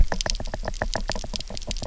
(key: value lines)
label: biophony, knock
recorder: SoundTrap 300